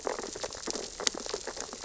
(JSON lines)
{"label": "biophony, sea urchins (Echinidae)", "recorder": "SoundTrap 600 or HydroMoth"}